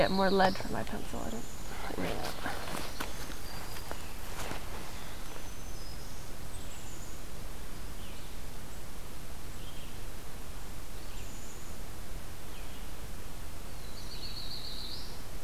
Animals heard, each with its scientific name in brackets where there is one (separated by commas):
Black-throated Green Warbler (Setophaga virens), Red-eyed Vireo (Vireo olivaceus), Black-capped Chickadee (Poecile atricapillus), Black-throated Blue Warbler (Setophaga caerulescens)